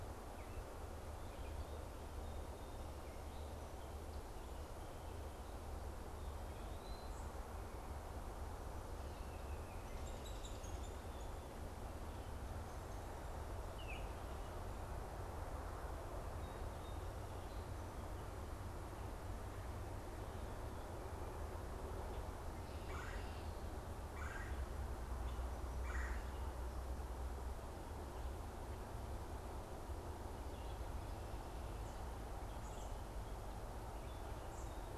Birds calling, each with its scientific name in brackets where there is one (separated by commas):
Baltimore Oriole (Icterus galbula), Eastern Wood-Pewee (Contopus virens), unidentified bird, Red-bellied Woodpecker (Melanerpes carolinus)